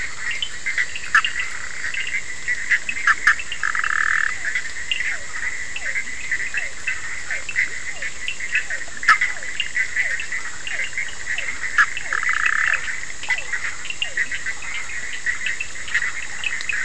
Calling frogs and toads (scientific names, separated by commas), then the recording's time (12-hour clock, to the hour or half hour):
Elachistocleis bicolor, Boana bischoffi, Sphaenorhynchus surdus, Leptodactylus latrans, Physalaemus cuvieri, Boana prasina
1:30am